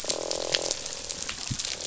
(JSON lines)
{"label": "biophony, croak", "recorder": "SoundTrap 500"}